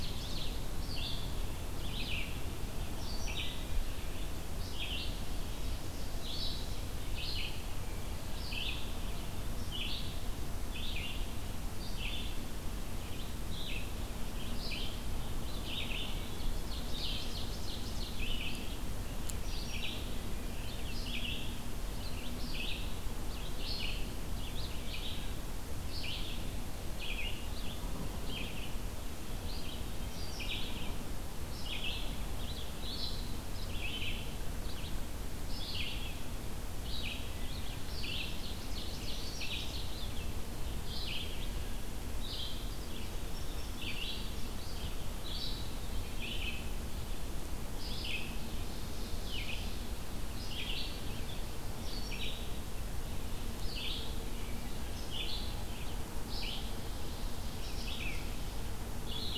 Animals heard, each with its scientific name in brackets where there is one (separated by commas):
Wood Thrush (Hylocichla mustelina), Indigo Bunting (Passerina cyanea), Red-eyed Vireo (Vireo olivaceus), Ovenbird (Seiurus aurocapilla)